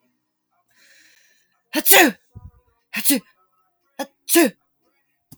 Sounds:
Sneeze